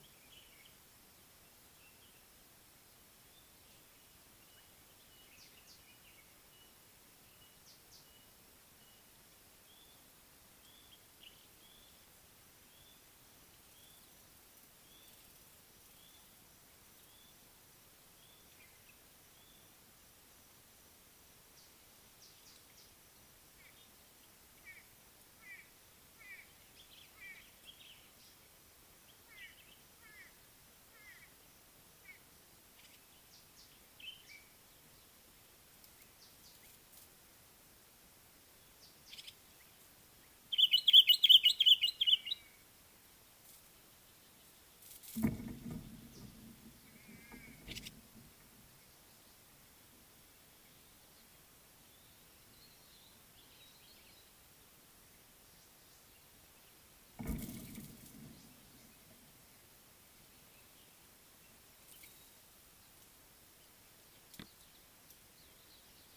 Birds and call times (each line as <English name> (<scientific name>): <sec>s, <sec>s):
White-browed Robin-Chat (Cossypha heuglini): 6.5s, 12.6s
Common Bulbul (Pycnonotus barbatus): 11.2s, 27.6s, 34.0s, 41.3s, 47.7s
White-bellied Go-away-bird (Corythaixoides leucogaster): 25.4s, 47.2s